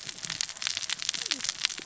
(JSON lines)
{"label": "biophony, cascading saw", "recorder": "SoundTrap 600 or HydroMoth"}